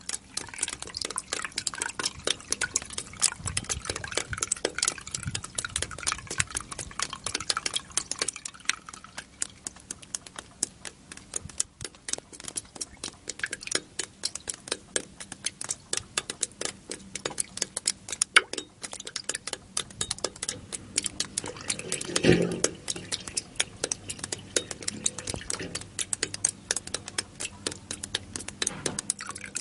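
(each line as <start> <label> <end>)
0.1 Liquid drops onto a metal surface, creating multiple overlapping squelching sounds. 9.0
9.2 Drops hit a metal surface at a constant pace with a resonant dripping pattern. 18.0
18.3 Liquid drips onto an uneven metal surface in several distinct trickles, producing a regular sound pattern. 29.6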